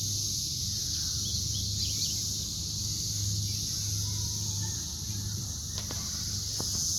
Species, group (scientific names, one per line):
Magicicada cassini
Cicadidae